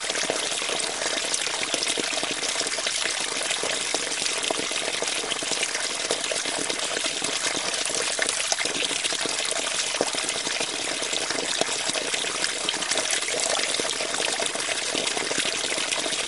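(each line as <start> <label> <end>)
0.0 Water trickling rapidly. 16.3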